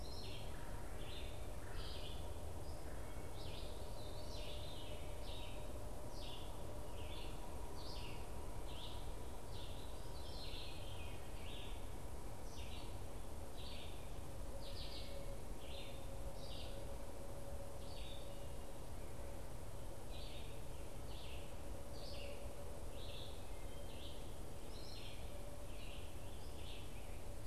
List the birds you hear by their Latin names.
Vireo olivaceus, Melanerpes carolinus, Catharus fuscescens